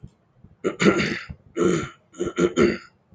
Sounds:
Throat clearing